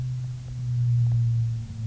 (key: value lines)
label: anthrophony, boat engine
recorder: SoundTrap 300